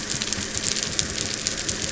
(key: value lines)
label: anthrophony, boat engine
recorder: SoundTrap 300